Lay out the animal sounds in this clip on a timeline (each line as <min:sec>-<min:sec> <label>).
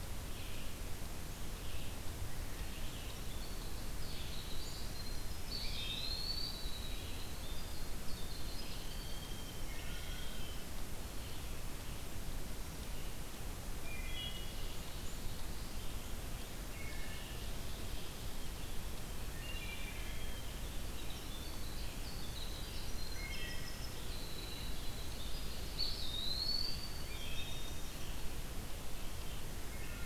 0:00.0-0:30.1 Red-eyed Vireo (Vireo olivaceus)
0:02.6-0:10.7 Winter Wren (Troglodytes hiemalis)
0:05.4-0:06.8 Eastern Wood-Pewee (Contopus virens)
0:09.6-0:10.5 Wood Thrush (Hylocichla mustelina)
0:13.7-0:14.8 Wood Thrush (Hylocichla mustelina)
0:14.3-0:15.9 Black-throated Blue Warbler (Setophaga caerulescens)
0:16.6-0:17.4 Wood Thrush (Hylocichla mustelina)
0:16.9-0:18.6 Ovenbird (Seiurus aurocapilla)
0:19.1-0:20.4 Wood Thrush (Hylocichla mustelina)
0:20.3-0:28.3 Winter Wren (Troglodytes hiemalis)
0:23.0-0:23.9 Wood Thrush (Hylocichla mustelina)
0:25.6-0:27.0 Eastern Wood-Pewee (Contopus virens)
0:27.0-0:28.1 Wood Thrush (Hylocichla mustelina)